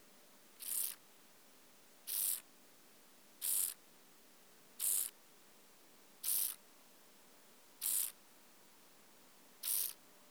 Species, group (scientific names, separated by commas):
Chorthippus brunneus, Orthoptera